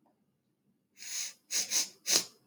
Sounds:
Sniff